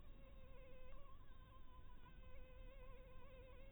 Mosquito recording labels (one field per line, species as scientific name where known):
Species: Anopheles harrisoni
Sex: female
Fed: blood-fed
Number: one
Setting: cup